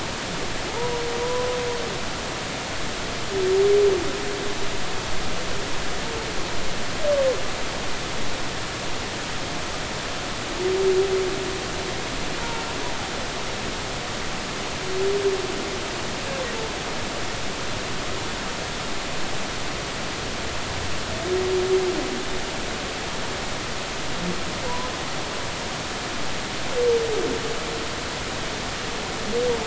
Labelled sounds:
0.7	1.5	humpback whale, 0.80 to 1.1 kHz
12.4	12.7	humpback whale, 0.86 to 0.99 kHz
24.7	24.9	humpback whale, 0.93 to 1.1 kHz

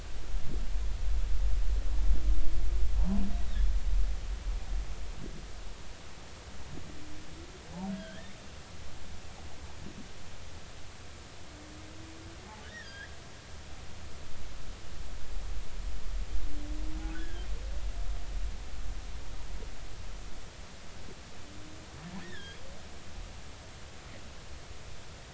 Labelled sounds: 3.0	3.2	humpback whale, 0.80 to 1.1 kHz
7.9	8.3	humpback whale, 1.5 to 3.4 kHz
12.6	13.1	humpback whale, 1.4 to 3.4 kHz
17.0	17.5	humpback whale, 1.4 to 1.8 kHz
22.2	22.6	humpback whale, 1.5 to 3.8 kHz

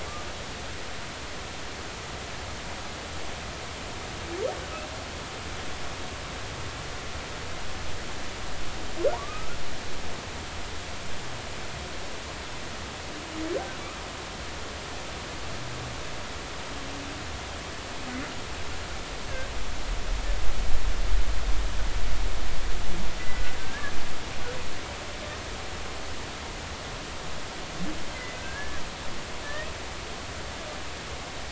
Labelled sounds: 9.1	9.6	humpback whale, 0.86 to 1.5 kHz
23.2	23.9	humpback whale, 1.5 to 2.1 kHz
28.1	28.8	humpback whale, 1.5 to 2.1 kHz
29.4	29.7	humpback whale, 1.7 to 1.9 kHz

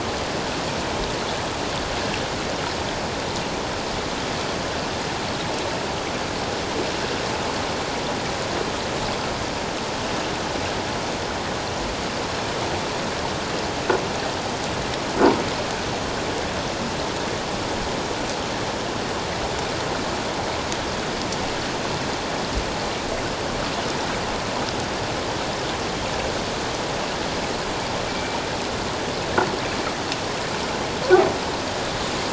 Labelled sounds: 28.1	28.4	water noise, 2.3 to 2.4 kHz

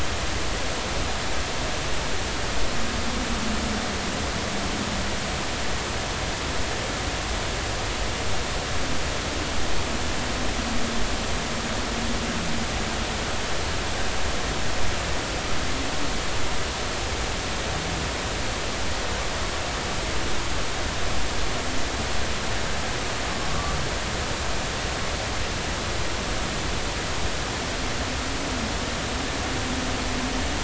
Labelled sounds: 23.5	23.8	humpback whale, 1.1 to 1.2 kHz

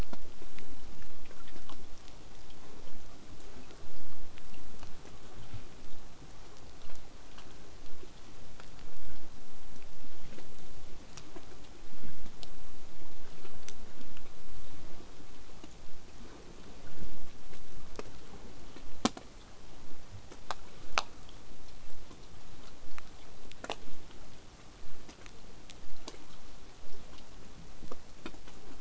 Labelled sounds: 23.8	28.8	vessel noise, 0 to 8.0 kHz

